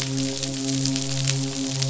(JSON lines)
{"label": "biophony, midshipman", "recorder": "SoundTrap 500"}